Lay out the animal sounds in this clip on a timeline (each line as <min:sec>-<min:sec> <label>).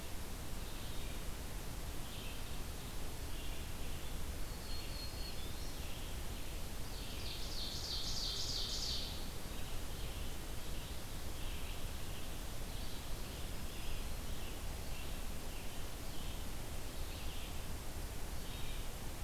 0:00.0-0:19.2 Red-eyed Vireo (Vireo olivaceus)
0:04.2-0:06.0 Black-throated Green Warbler (Setophaga virens)
0:06.9-0:09.6 Ovenbird (Seiurus aurocapilla)
0:13.2-0:14.5 Black-throated Green Warbler (Setophaga virens)